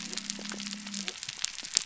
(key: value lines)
label: biophony
recorder: SoundTrap 300